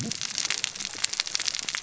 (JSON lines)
{"label": "biophony, cascading saw", "recorder": "SoundTrap 600 or HydroMoth"}